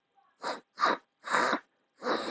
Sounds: Sniff